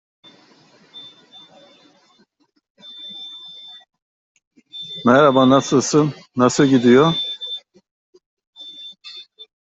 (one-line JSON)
{"expert_labels": [{"quality": "no cough present", "dyspnea": false, "wheezing": false, "stridor": false, "choking": false, "congestion": false, "nothing": false}], "age": 45, "gender": "male", "respiratory_condition": false, "fever_muscle_pain": false, "status": "healthy"}